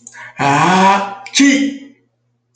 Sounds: Sneeze